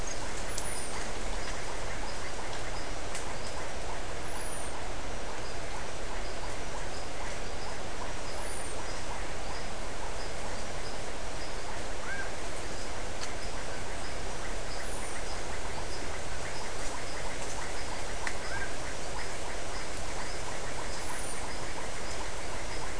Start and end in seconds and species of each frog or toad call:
0.6	22.9	marbled tropical bullfrog
0.6	22.9	Iporanga white-lipped frog
Brazil, 5:30pm

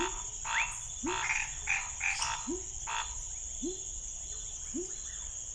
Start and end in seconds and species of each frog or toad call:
0.0	0.7	rufous frog
0.0	3.0	Scinax fuscovarius
0.0	5.5	pepper frog
1.2	1.5	Chaco tree frog
Brazil, 9pm

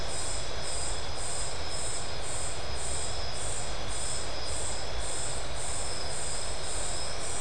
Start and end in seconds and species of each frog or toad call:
none
Brazil, 3am

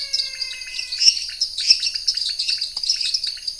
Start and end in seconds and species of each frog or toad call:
0.0	1.1	menwig frog
0.0	3.5	dwarf tree frog
0.0	3.5	pointedbelly frog
0.8	3.5	lesser tree frog
Brazil, 9pm

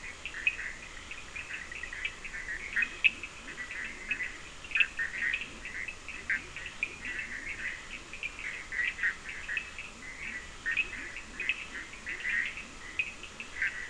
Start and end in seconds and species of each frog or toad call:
0.0	13.8	Bischoff's tree frog
0.0	13.8	Cochran's lime tree frog
2.7	8.3	Leptodactylus latrans
9.7	13.8	Leptodactylus latrans
Brazil, 3am

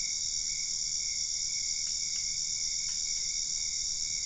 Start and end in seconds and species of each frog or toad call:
none
Brazil, ~midnight

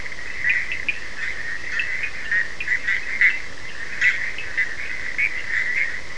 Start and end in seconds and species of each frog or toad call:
0.0	6.1	Bischoff's tree frog
0.0	6.1	Cochran's lime tree frog
0.6	1.2	Leptodactylus latrans
Brazil, 4:30am

